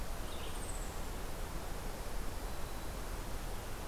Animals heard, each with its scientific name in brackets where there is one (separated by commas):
Eastern Chipmunk (Tamias striatus), Red-eyed Vireo (Vireo olivaceus)